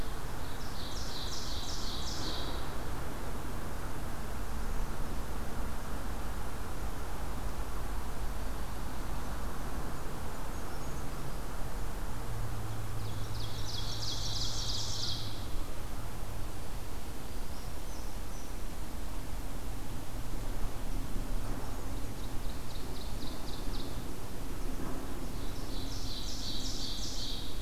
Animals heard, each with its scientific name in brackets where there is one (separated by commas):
Red Squirrel (Tamiasciurus hudsonicus), Ovenbird (Seiurus aurocapilla)